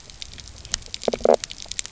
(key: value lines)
label: biophony
recorder: SoundTrap 300